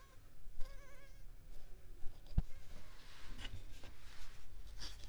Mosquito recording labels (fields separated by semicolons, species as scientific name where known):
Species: Culex pipiens complex; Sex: female; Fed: unfed; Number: one; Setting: cup